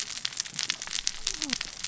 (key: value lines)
label: biophony, cascading saw
recorder: SoundTrap 600 or HydroMoth